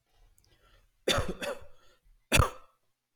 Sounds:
Cough